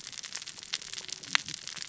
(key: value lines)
label: biophony, cascading saw
recorder: SoundTrap 600 or HydroMoth